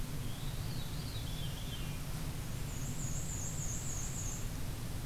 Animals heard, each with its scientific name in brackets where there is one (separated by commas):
Black-and-white Warbler (Mniotilta varia), Veery (Catharus fuscescens)